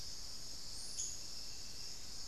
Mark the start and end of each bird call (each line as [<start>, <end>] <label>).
[0.00, 2.27] unidentified bird